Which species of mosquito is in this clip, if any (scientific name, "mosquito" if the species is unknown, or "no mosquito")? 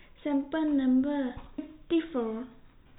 no mosquito